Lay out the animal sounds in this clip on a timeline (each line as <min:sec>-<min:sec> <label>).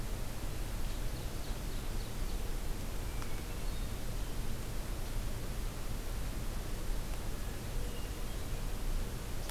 0:00.7-0:02.4 Ovenbird (Seiurus aurocapilla)
0:02.9-0:03.9 Hermit Thrush (Catharus guttatus)
0:07.3-0:08.7 Hermit Thrush (Catharus guttatus)